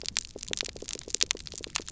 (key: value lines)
label: biophony, pulse
recorder: SoundTrap 300